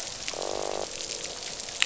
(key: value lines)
label: biophony, croak
recorder: SoundTrap 500